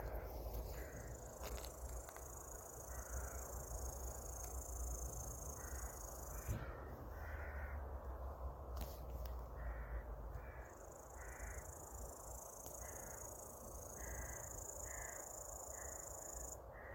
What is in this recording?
Tettigonia cantans, an orthopteran